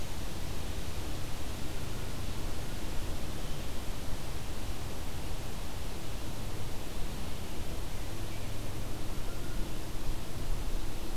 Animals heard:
forest ambience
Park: Marsh-Billings-Rockefeller National Historical Park